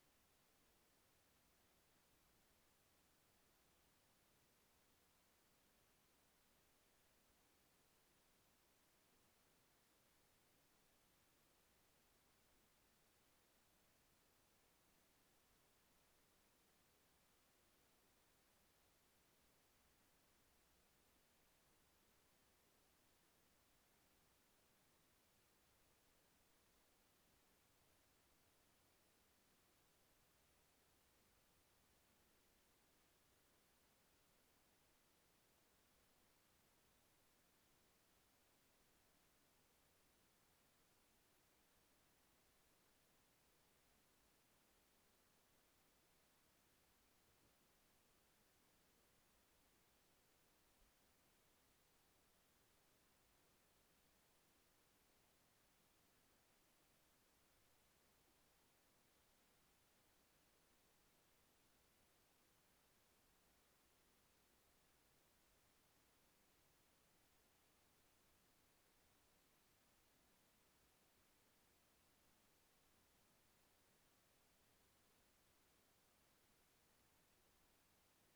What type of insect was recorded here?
orthopteran